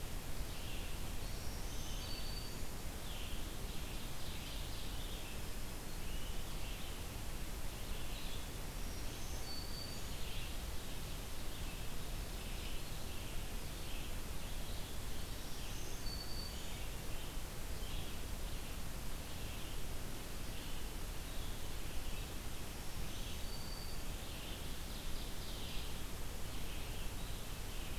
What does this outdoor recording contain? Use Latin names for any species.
Vireo olivaceus, Setophaga virens, Seiurus aurocapilla